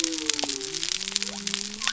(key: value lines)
label: biophony
recorder: SoundTrap 300